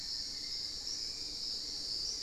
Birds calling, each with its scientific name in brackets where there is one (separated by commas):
Hauxwell's Thrush (Turdus hauxwelli), Fasciated Antshrike (Cymbilaimus lineatus)